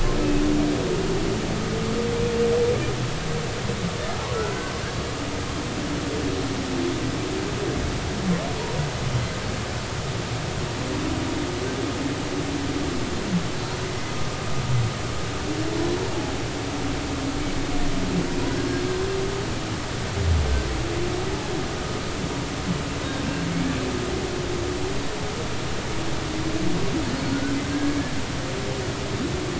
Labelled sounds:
27.7	28.0	humpback whale, 1.6 to 1.7 kHz

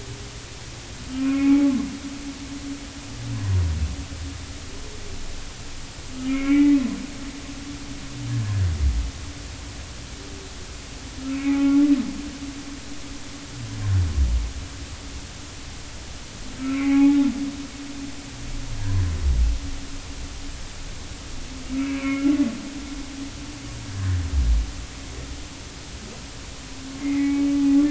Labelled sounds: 1.1	1.8	humpback whale, 0.80 to 2.3 kHz
6.3	6.8	humpback whale, 0.80 to 2.5 kHz
11.3	11.9	humpback whale, 0.80 to 2.6 kHz
16.6	17.2	humpback whale, 0.80 to 2.6 kHz
18.8	19.0	humpback whale, 0.90 to 1.1 kHz
21.8	22.3	humpback whale, 1.1 to 2.7 kHz
26.9	27.4	humpback whale, 0.80 to 2.3 kHz

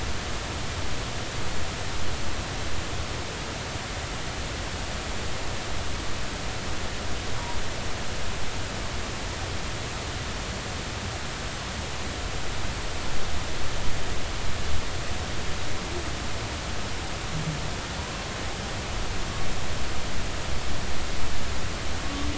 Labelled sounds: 22.0	22.3	humpback whale, 1.1 to 1.2 kHz

